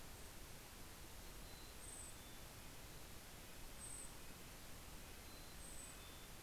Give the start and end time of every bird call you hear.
[0.82, 3.02] Mountain Chickadee (Poecile gambeli)
[1.32, 6.42] Golden-crowned Kinglet (Regulus satrapa)
[2.72, 6.42] Red-breasted Nuthatch (Sitta canadensis)
[4.52, 6.42] Mountain Chickadee (Poecile gambeli)

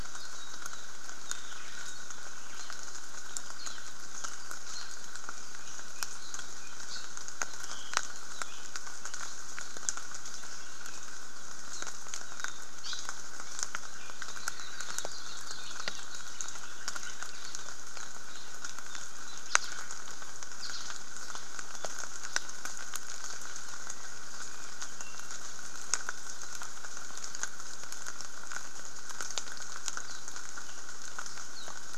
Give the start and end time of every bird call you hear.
[0.12, 0.92] Apapane (Himatione sanguinea)
[1.22, 1.62] Apapane (Himatione sanguinea)
[3.52, 3.82] Apapane (Himatione sanguinea)
[4.72, 5.12] Apapane (Himatione sanguinea)
[6.82, 7.12] Apapane (Himatione sanguinea)
[7.42, 8.72] Apapane (Himatione sanguinea)
[11.62, 11.92] Apapane (Himatione sanguinea)
[12.22, 13.12] Apapane (Himatione sanguinea)
[14.12, 16.72] Hawaii Akepa (Loxops coccineus)
[19.42, 19.82] Hawaii Elepaio (Chasiempis sandwichensis)
[20.52, 20.92] Hawaii Elepaio (Chasiempis sandwichensis)
[30.02, 30.32] Apapane (Himatione sanguinea)
[31.52, 31.82] Apapane (Himatione sanguinea)

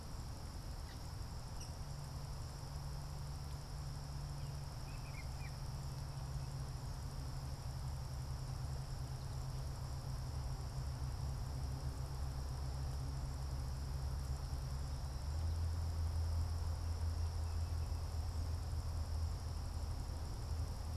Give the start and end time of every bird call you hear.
[1.47, 1.87] Rose-breasted Grosbeak (Pheucticus ludovicianus)
[4.57, 5.77] Rose-breasted Grosbeak (Pheucticus ludovicianus)

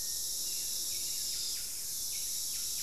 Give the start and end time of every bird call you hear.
[0.00, 2.83] Buff-breasted Wren (Cantorchilus leucotis)
[0.00, 2.83] Hauxwell's Thrush (Turdus hauxwelli)

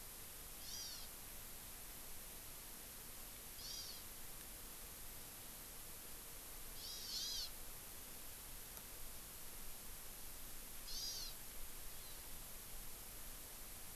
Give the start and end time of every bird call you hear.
[0.57, 1.07] Hawaii Amakihi (Chlorodrepanis virens)
[3.57, 4.07] Hawaii Amakihi (Chlorodrepanis virens)
[6.77, 7.47] Hawaii Amakihi (Chlorodrepanis virens)
[10.87, 11.37] Hawaii Amakihi (Chlorodrepanis virens)
[11.97, 12.17] Hawaii Amakihi (Chlorodrepanis virens)

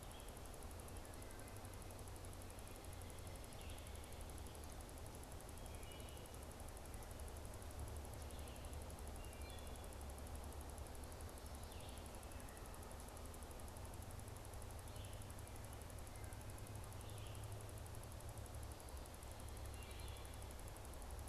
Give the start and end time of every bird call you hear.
[5.61, 6.41] Wood Thrush (Hylocichla mustelina)
[9.11, 9.91] Wood Thrush (Hylocichla mustelina)
[11.61, 17.51] Red-eyed Vireo (Vireo olivaceus)
[19.61, 20.41] Wood Thrush (Hylocichla mustelina)

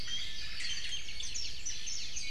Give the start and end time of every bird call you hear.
[0.00, 1.00] Iiwi (Drepanis coccinea)
[0.40, 1.10] Omao (Myadestes obscurus)
[1.20, 2.30] Warbling White-eye (Zosterops japonicus)

